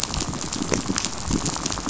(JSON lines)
{"label": "biophony, rattle", "recorder": "SoundTrap 500"}